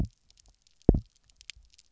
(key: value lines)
label: biophony, double pulse
recorder: SoundTrap 300